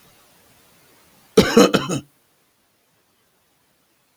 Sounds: Cough